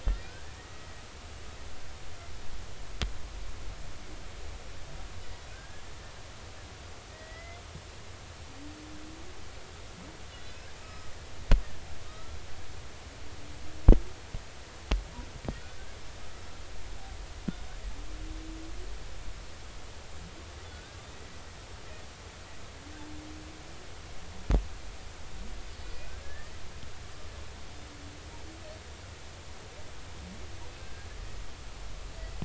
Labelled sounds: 0.0	0.3	humpback whale, 1.8 to 2.0 kHz
5.5	5.8	humpback whale, 1.5 to 1.7 kHz
7.1	7.6	humpback whale, 1.8 to 2.2 kHz
10.3	11.1	humpback whale, 1.2 to 4.2 kHz
12.0	12.4	humpback whale, 1.2 to 1.4 kHz
20.7	21.0	humpback whale, 1.4 to 1.7 kHz
26.2	26.5	humpback whale, 1.6 to 1.9 kHz
30.8	31.1	humpback whale, 1.5 to 1.7 kHz

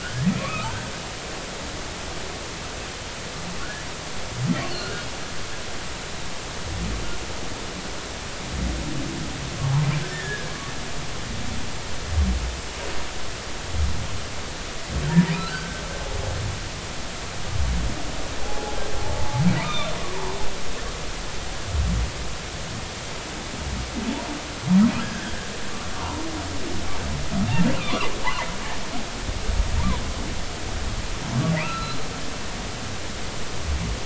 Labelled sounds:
0.0	0.7	humpback whale, 1.0 to 2.6 kHz
4.7	5.0	humpback whale, 1.3 to 3.0 kHz
10.1	10.5	humpback whale, 1.6 to 1.9 kHz
15.1	15.8	humpback whale, 0.86 to 1.6 kHz
18.4	18.8	humpback whale, 0.80 to 0.90 kHz
19.2	20.0	humpback whale, 0.80 to 3.8 kHz
25.0	26.2	humpback whale, 0.86 to 1.8 kHz
27.8	28.1	humpback whale, 0.86 to 1.5 kHz
31.6	32.0	humpback whale, 1.2 to 4.2 kHz

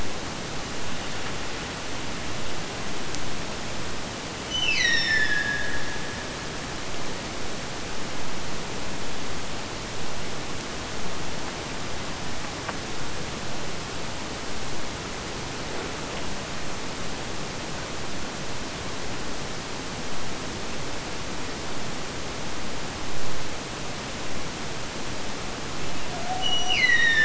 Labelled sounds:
4.4	6.8	killer whale, Bigg's (transient), Gulf of Alaska transient, 1.6 to 6.4 kHz
26.0	27.2	killer whale, Bigg's (transient), Gulf of Alaska transient, 0.46 to 6.2 kHz

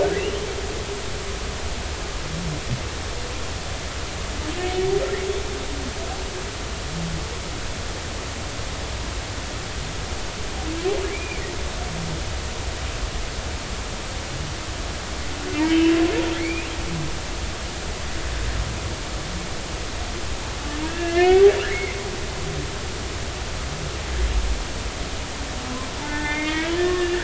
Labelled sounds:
11.1	11.4	humpback whale, 2.2 to 2.5 kHz
15.5	16.0	humpback whale, 2.0 to 2.8 kHz
17.4	17.7	humpback whale, 1.9 to 2.8 kHz
20.8	22.0	humpback whale, 1.4 to 3.0 kHz
26.0	27.2	humpback whale, 0.83 to 3.8 kHz

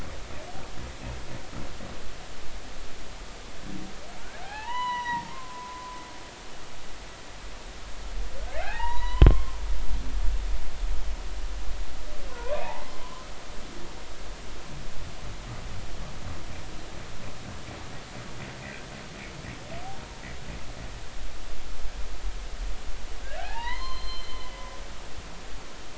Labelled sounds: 4.4	6.1	humpback whale, 0.80 to 5.9 kHz
8.5	9.6	humpback whale, 0.80 to 4.1 kHz
12.3	13.3	humpback whale, 0.80 to 1.2 kHz
23.4	24.7	humpback whale, 0.80 to 4.3 kHz

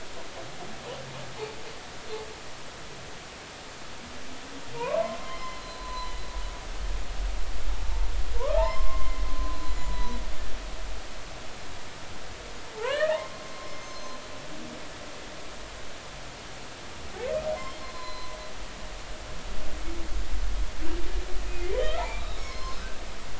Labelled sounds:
4.7	6.1	humpback whale, 0.83 to 4.2 kHz
8.4	9.2	humpback whale, 0.80 to 2.3 kHz
9.5	10.2	humpback whale, 0.93 to 7.1 kHz
12.7	13.2	humpback whale, 0.80 to 2.7 kHz
13.8	14.2	humpback whale, 4.1 to 6.3 kHz
17.7	18.4	humpback whale, 0.96 to 4.3 kHz
21.8	22.8	humpback whale, 0.99 to 5.3 kHz

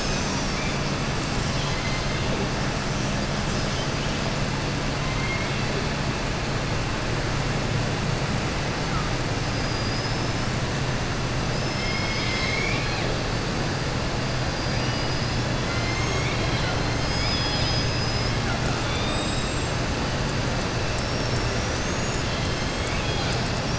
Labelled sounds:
1.4	2.2	killer whale, southern resident, 2.0 to 4.2 kHz
9.5	10.4	killer whale, southern resident, 4.9 to 5.3 kHz
11.5	13.1	killer whale, southern resident, 2.0 to 7.4 kHz
18.8	19.5	killer whale, southern resident, 1.4 to 5.1 kHz

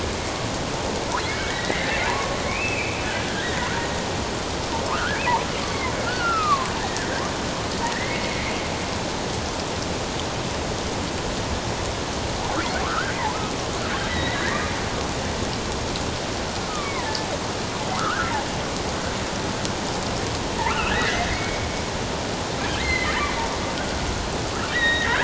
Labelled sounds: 1.2	3.0	killer whale, offshore, 0.88 to 2.7 kHz
3.4	3.7	killer whale, offshore, 1.8 to 2.0 kHz
4.9	7.1	killer whale, offshore, 0.88 to 2.7 kHz
7.9	8.6	killer whale, offshore, 1.7 to 2.4 kHz
12.8	13.2	killer whale, offshore, 1.0 to 1.7 kHz
14.1	14.5	killer whale, offshore, 1.8 to 4.0 kHz
16.7	17.3	killer whale, offshore, 0.84 to 2.4 kHz
18.0	18.4	killer whale, offshore, 1.1 to 2.2 kHz
20.6	21.7	killer whale, offshore, 0.81 to 3.0 kHz
22.7	23.2	killer whale, offshore, 1.6 to 4.3 kHz
24.7	25.1	killer whale, offshore, 3.7 to 3.9 kHz

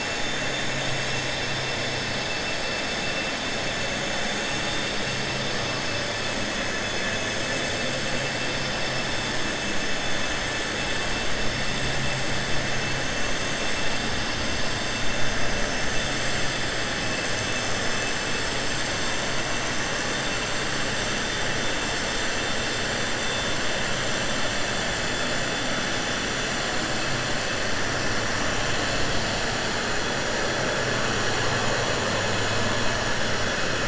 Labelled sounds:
6.7	7.3	vessel noise, 1.7 to 5.2 kHz

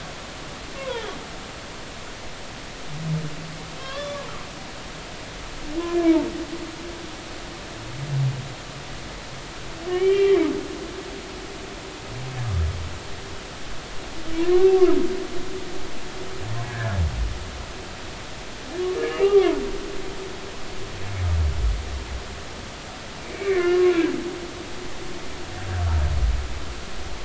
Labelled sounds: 0.8	1.1	humpback whale, 0.83 to 1.1 kHz
3.7	5.3	humpback whale, 0.96 to 3.6 kHz
5.8	6.2	humpback whale, 2.2 to 2.5 kHz
6.8	7.1	humpback whale, 1.7 to 1.8 kHz
9.9	10.5	humpback whale, 2.1 to 3.2 kHz
14.4	14.7	humpback whale, 0.93 to 1.2 kHz
16.6	17.0	humpback whale, 1.5 to 1.8 kHz
19.1	20.1	humpback whale, 0.80 to 2.9 kHz
23.2	23.8	humpback whale, 1.7 to 2.5 kHz

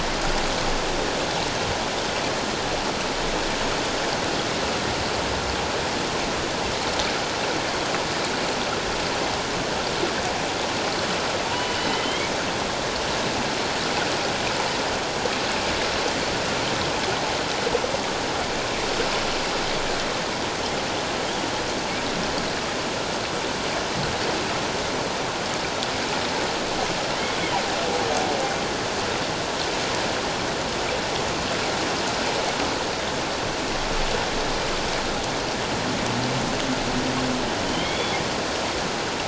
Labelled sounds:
11.4	12.3	humpback whale, 0.88 to 3.3 kHz
37.7	38.2	humpback whale, 2.0 to 3.5 kHz

